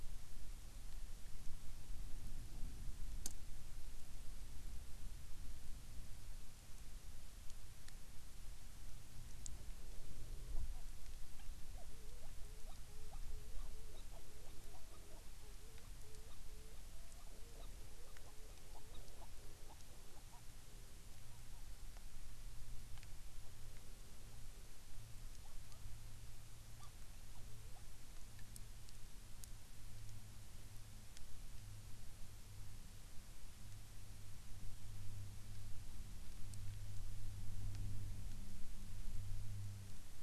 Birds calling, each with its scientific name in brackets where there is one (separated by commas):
Hawaiian Petrel (Pterodroma sandwichensis)